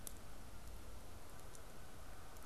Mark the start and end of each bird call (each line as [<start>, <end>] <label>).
[0.00, 2.45] Canada Goose (Branta canadensis)